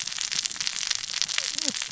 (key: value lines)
label: biophony, cascading saw
recorder: SoundTrap 600 or HydroMoth